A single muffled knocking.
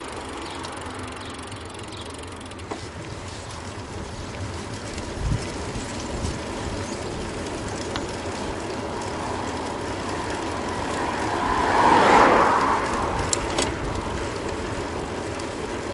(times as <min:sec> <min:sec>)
0:07.9 0:08.0